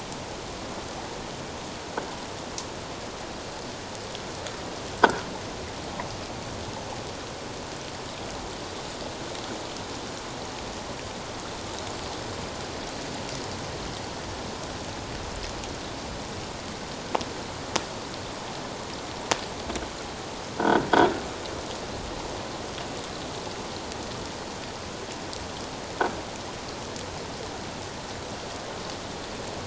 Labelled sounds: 5.0	5.3	croaking sound likely from a nearby submerged object, 1.3 to 1.7 kHz
20.6	20.9	croaking sound likely from a nearby submerged object, 1.4 to 1.6 kHz

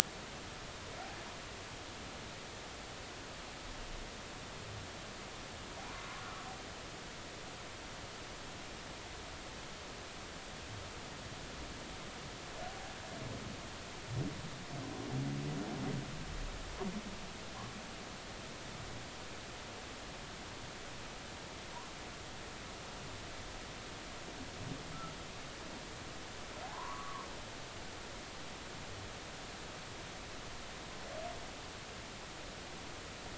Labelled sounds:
6.2	6.5	humpback whale, 1.2 to 1.5 kHz
12.7	13.0	humpback whale, 0.80 to 0.86 kHz
26.6	27.2	humpback whale, 0.80 to 1.3 kHz

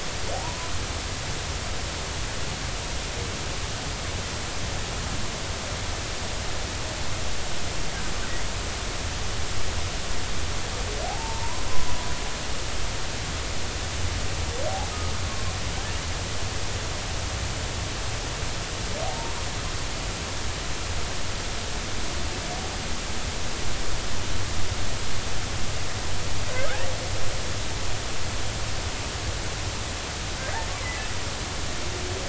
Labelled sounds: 0.4	0.7	humpback whale, 0.90 to 1.1 kHz
11.1	11.7	humpback whale, 0.80 to 1.1 kHz
19.1	19.4	humpback whale, 0.86 to 1.1 kHz
26.6	26.9	humpback whale, 1.2 to 2.0 kHz

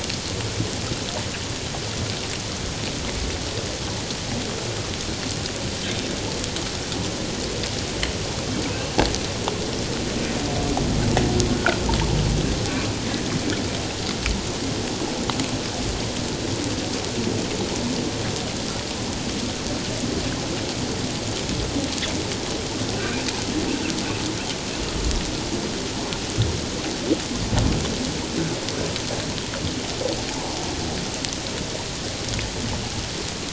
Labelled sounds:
8.7	9.0	humpback whale, 2.5 to 2.8 kHz
11.5	11.8	humpback whale, 1.3 to 1.7 kHz
13.0	13.3	humpback whale, 1.6 to 2.0 kHz
22.9	23.2	humpback whale, 1.4 to 1.6 kHz
30.3	30.6	humpback whale, 0.78 to 1.1 kHz

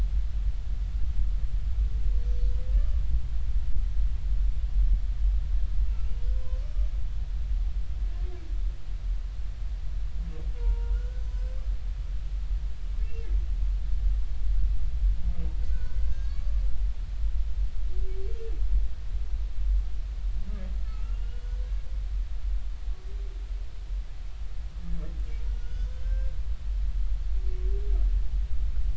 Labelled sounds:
2.8	3.0	humpback whale, 1.1 to 1.2 kHz
5.9	6.6	humpback whale, 0.96 to 2.9 kHz
10.6	11.6	humpback whale, 0.86 to 6.1 kHz
13.0	13.3	humpback whale, 2.6 to 2.8 kHz
15.7	16.6	humpback whale, 1.1 to 6.6 kHz
17.0	17.4	humpback whale, 4.6 to 5.1 kHz
20.9	21.5	humpback whale, 1.2 to 3.0 kHz
25.4	26.3	humpback whale, 1.4 to 5.6 kHz

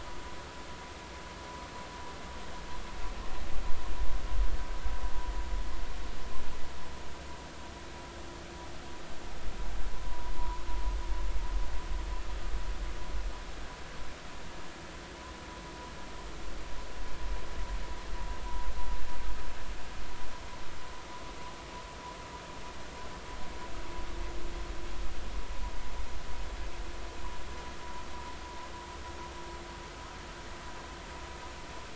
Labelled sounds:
9.9	10.6	vessel noise, 0.90 to 1.1 kHz

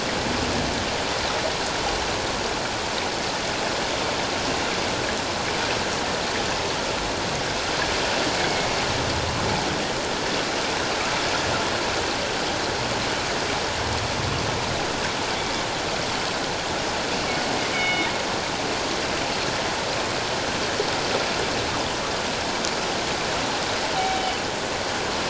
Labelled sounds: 8.4	8.7	killer whale, northern resident, G clan, 2.1 to 2.2 kHz
17.7	18.1	killer whale, northern resident, G clan, 2.1 to 3.7 kHz
23.9	24.2	killer whale, northern resident, G clan, 0.78 to 0.81 kHz

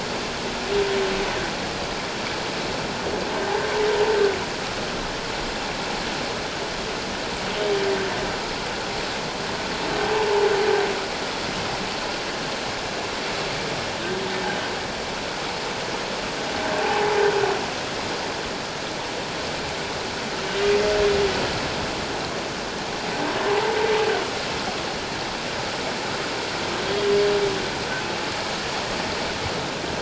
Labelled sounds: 16.8	17.1	humpback whale, 0.78 to 1.1 kHz
23.5	23.8	humpback whale, 0.78 to 1.1 kHz

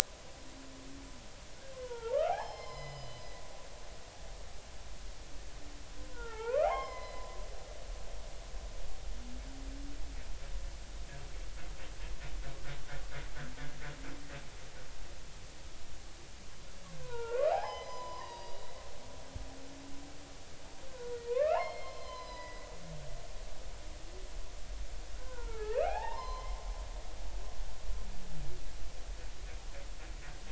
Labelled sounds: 1.7	3.2	humpback whale, 0.80 to 5.3 kHz
6.1	7.2	humpback whale, 0.80 to 5.4 kHz
17.0	18.7	humpback whale, 0.80 to 6.1 kHz
20.9	22.6	humpback whale, 0.83 to 5.4 kHz
23.0	23.7	humpback whale, 1.9 to 2.1 kHz
25.1	26.6	humpback whale, 0.80 to 5.3 kHz

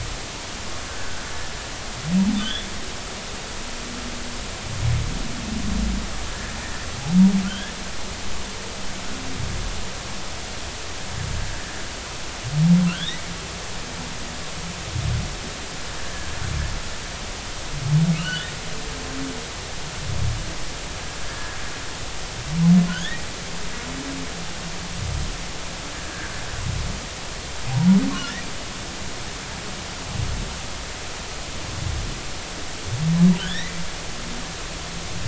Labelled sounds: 0.9	1.2	humpback whale, 1.4 to 1.8 kHz
2.4	2.7	humpback whale, 3.0 to 3.7 kHz
7.4	7.7	humpback whale, 1.3 to 3.5 kHz
12.9	13.2	humpback whale, 1.2 to 4.0 kHz
16.1	16.4	humpback whale, 1.6 to 1.8 kHz
18.1	18.5	humpback whale, 1.4 to 3.1 kHz
21.3	21.6	humpback whale, 1.6 to 1.8 kHz
22.9	23.3	humpback whale, 1.3 to 3.8 kHz
33.4	33.7	humpback whale, 1.3 to 4.1 kHz

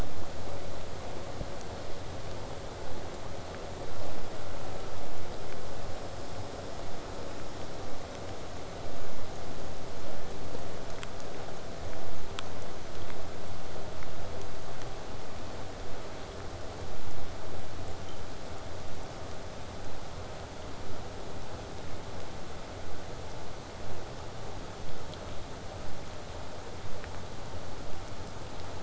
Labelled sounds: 23.8	28.8	vessel noise, 0 to 8.0 kHz

